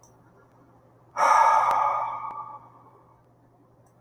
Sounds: Sigh